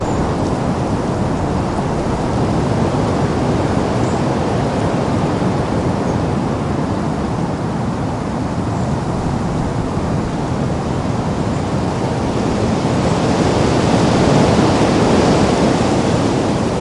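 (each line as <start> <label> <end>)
0.0 Heavy wind blowing loudly outside in a forest. 16.8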